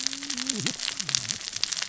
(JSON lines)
{"label": "biophony, cascading saw", "recorder": "SoundTrap 600 or HydroMoth"}